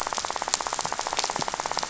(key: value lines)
label: biophony, rattle
recorder: SoundTrap 500